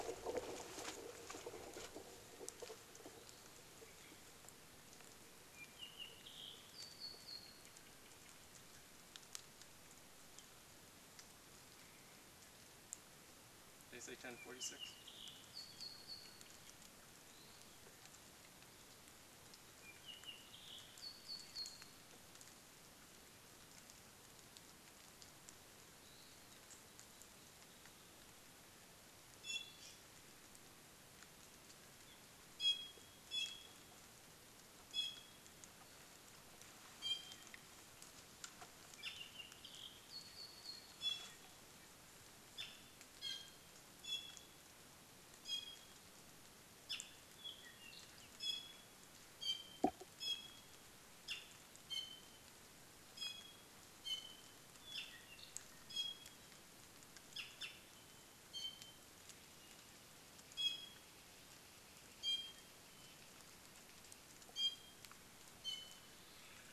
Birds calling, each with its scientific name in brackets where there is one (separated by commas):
Iiwi (Drepanis coccinea), Apapane (Himatione sanguinea)